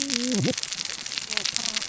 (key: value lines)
label: biophony, cascading saw
recorder: SoundTrap 600 or HydroMoth